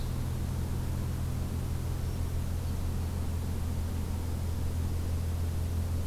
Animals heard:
forest ambience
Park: Acadia National Park